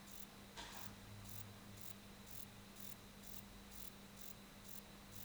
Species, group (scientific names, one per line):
Rhacocleis baccettii
Orthoptera